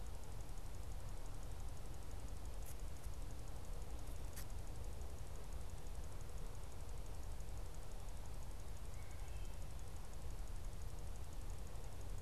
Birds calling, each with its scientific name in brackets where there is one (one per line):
Wood Thrush (Hylocichla mustelina)